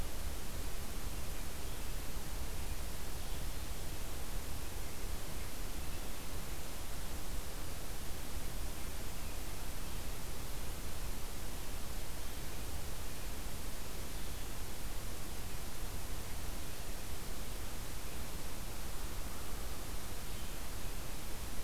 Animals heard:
forest ambience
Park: Acadia National Park